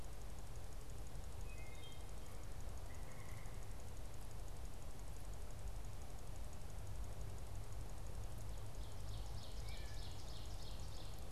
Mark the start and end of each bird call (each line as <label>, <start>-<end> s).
Wood Thrush (Hylocichla mustelina), 1.3-2.1 s
Ovenbird (Seiurus aurocapilla), 8.8-11.3 s